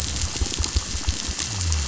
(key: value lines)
label: biophony
recorder: SoundTrap 500